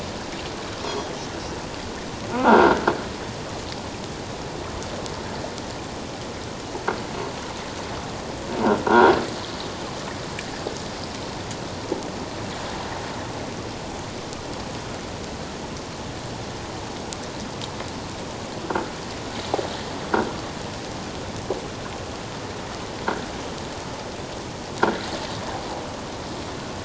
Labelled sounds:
2.3	2.8	croaking sound likely from a nearby submerged object, 1.2 to 1.7 kHz
8.9	9.1	croaking sound likely from a nearby submerged object, 1.3 to 1.6 kHz

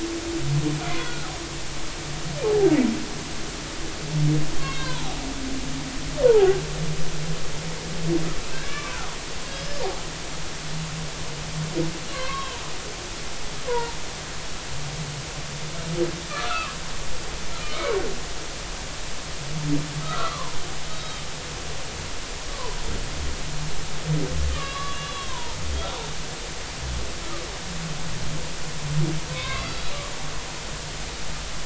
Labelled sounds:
0.9	1.2	humpback whale, 1.9 to 2.2 kHz
2.4	2.7	humpback whale, 0.80 to 0.90 kHz
4.6	5.2	humpback whale, 0.80 to 4.4 kHz
6.3	6.6	humpback whale, 0.80 to 0.99 kHz
8.5	8.9	humpback whale, 1.1 to 2.4 kHz
9.5	9.8	humpback whale, 4.9 to 5.2 kHz
12.1	12.6	humpback whale, 0.90 to 1.7 kHz
13.7	14.0	humpback whale, 0.86 to 1.1 kHz
16.3	16.7	humpback whale, 1.0 to 1.5 kHz
17.6	18.0	humpback whale, 1.2 to 2.3 kHz
20.0	21.2	humpback whale, 0.90 to 3.9 kHz
22.5	22.8	humpback whale, 0.86 to 1.2 kHz
24.5	25.6	humpback whale, 0.86 to 3.5 kHz
29.3	29.7	humpback whale, 0.99 to 2.3 kHz

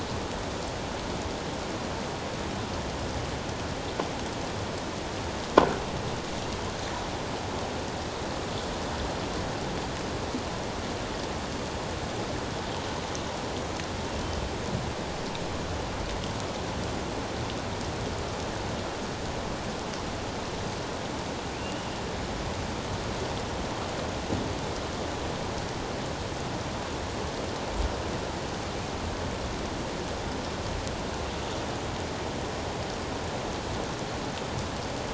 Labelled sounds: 21.6	21.8	killer whale, offshore, 2.7 to 3.0 kHz

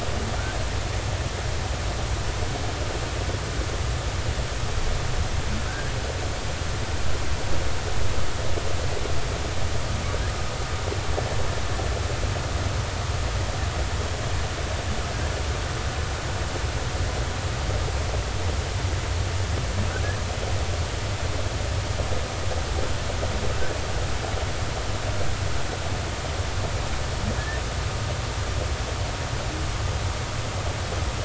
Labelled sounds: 5.7	5.9	humpback whale, 1.4 to 1.7 kHz
27.4	27.6	humpback whale, 1.6 to 1.9 kHz

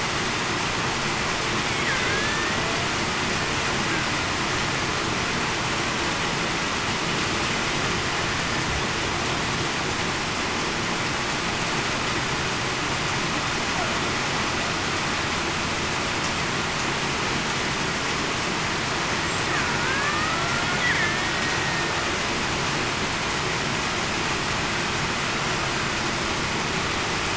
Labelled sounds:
2.1	2.6	killer whale, Bigg's (transient), 1.5 to 2.0 kHz
19.8	20.3	killer whale, Bigg's (transient), 1.4 to 1.9 kHz
21.0	21.3	killer whale, Bigg's (transient), 1.7 to 1.9 kHz

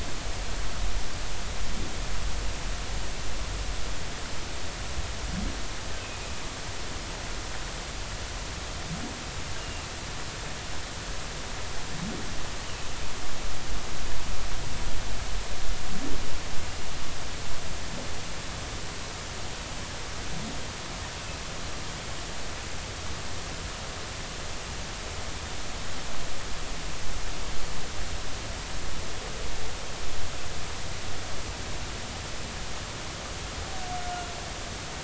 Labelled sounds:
9.6	9.9	humpback whale, 2.6 to 2.9 kHz

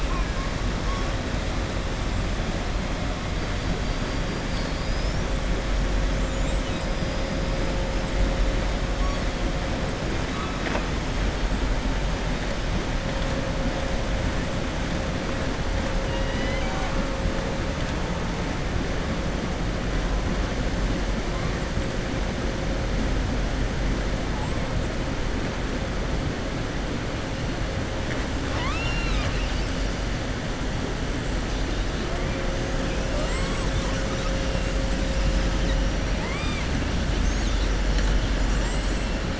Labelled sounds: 10.3	10.8	killer whale, southern resident, 0.40 to 3.9 kHz
16.0	17.0	killer whale, southern resident, 0.76 to 5.0 kHz
28.4	29.9	killer whale, southern resident, 0.96 to 7.0 kHz
36.1	36.7	killer whale, southern resident, 0.86 to 4.9 kHz
38.4	39.0	killer whale, southern resident, 5.7 to 8.0 kHz

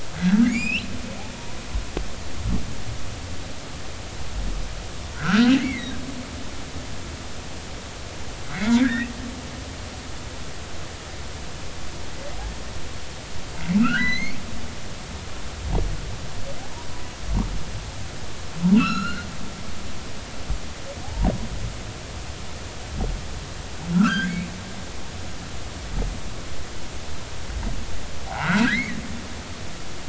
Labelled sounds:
0.2	0.9	humpback whale, 1.4 to 7.6 kHz
5.1	6.0	humpback whale, 1.2 to 2.3 kHz
8.5	9.1	humpback whale, 1.3 to 2.3 kHz
13.8	14.4	humpback whale, 1.2 to 4.5 kHz
18.7	19.3	humpback whale, 1.1 to 4.3 kHz
21.0	21.3	humpback whale, 0.80 to 1.0 kHz
23.9	24.5	humpback whale, 1.1 to 2.6 kHz
28.6	29.0	humpback whale, 1.4 to 2.3 kHz

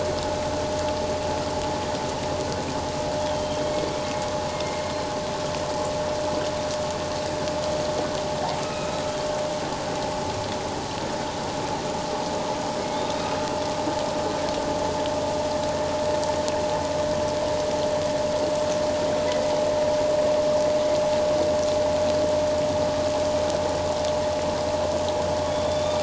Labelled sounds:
3.3	3.9	humpback whale, 2.1 to 3.2 kHz
4.5	4.9	humpback whale, 2.1 to 2.2 kHz
8.6	9.0	humpback whale, 1.2 to 2.7 kHz

